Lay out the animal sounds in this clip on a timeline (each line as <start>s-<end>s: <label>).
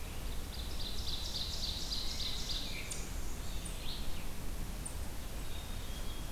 0.3s-2.8s: Ovenbird (Seiurus aurocapilla)
2.6s-3.0s: Veery (Catharus fuscescens)
3.5s-4.2s: Blue-headed Vireo (Vireo solitarius)
5.3s-6.3s: Black-capped Chickadee (Poecile atricapillus)